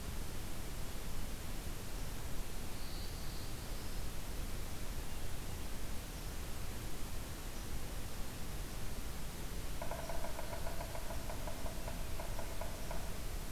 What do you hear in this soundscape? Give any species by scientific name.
Setophaga caerulescens, Sphyrapicus varius